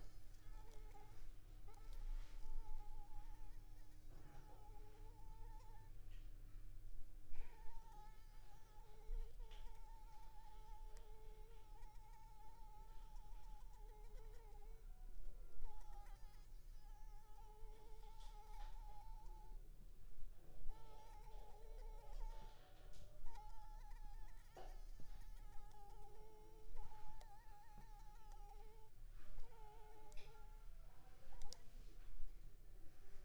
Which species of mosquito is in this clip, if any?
Anopheles arabiensis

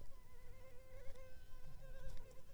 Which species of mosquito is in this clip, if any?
Culex pipiens complex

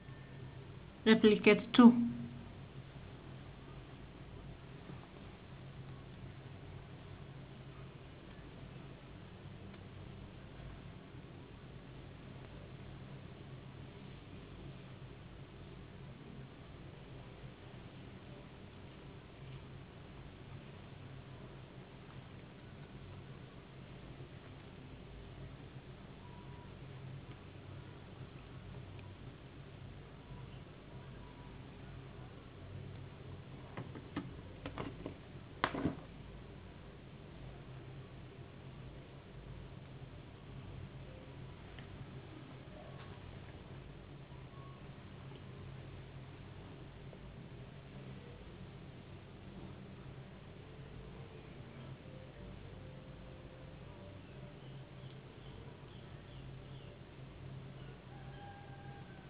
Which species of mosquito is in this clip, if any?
no mosquito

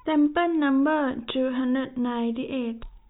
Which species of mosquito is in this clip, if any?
no mosquito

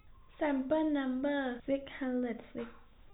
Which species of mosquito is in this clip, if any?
no mosquito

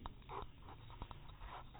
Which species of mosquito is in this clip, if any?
no mosquito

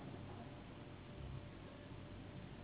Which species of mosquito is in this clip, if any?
Anopheles gambiae s.s.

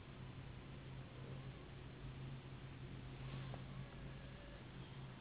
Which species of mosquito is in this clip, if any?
Anopheles gambiae s.s.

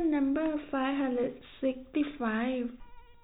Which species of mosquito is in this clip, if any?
no mosquito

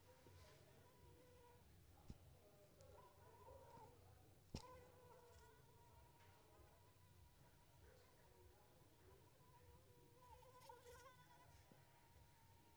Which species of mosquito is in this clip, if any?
Anopheles arabiensis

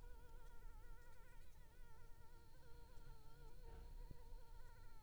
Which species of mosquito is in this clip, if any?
Anopheles gambiae s.l.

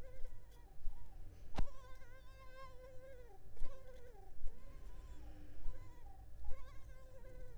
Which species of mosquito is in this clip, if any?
Culex pipiens complex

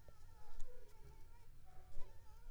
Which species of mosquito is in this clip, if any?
Anopheles coustani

